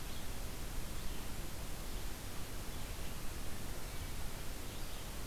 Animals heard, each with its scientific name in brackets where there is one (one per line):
Red-eyed Vireo (Vireo olivaceus)